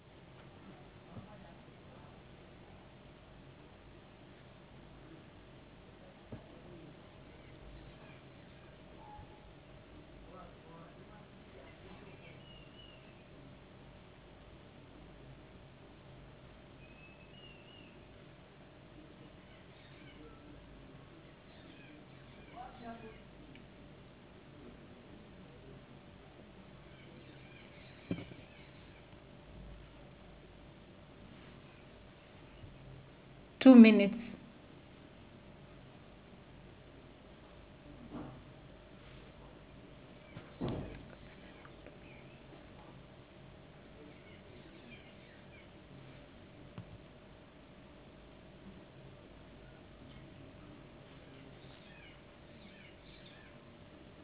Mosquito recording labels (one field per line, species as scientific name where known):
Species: no mosquito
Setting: insect culture